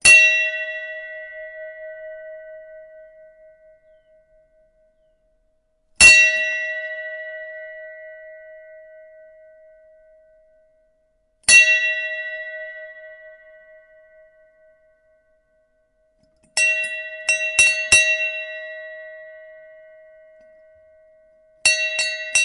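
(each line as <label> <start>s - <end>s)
A bell is ringing. 0.0s - 3.4s
A bell is ringing. 5.8s - 10.0s
A bell is ringing. 11.2s - 14.9s
Four bell rings. 16.3s - 20.7s
A bell is ringing. 21.3s - 22.4s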